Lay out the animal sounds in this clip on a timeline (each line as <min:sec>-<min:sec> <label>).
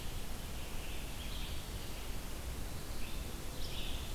0:00.0-0:04.1 Red-eyed Vireo (Vireo olivaceus)